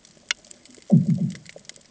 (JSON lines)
{"label": "anthrophony, bomb", "recorder": "HydroMoth"}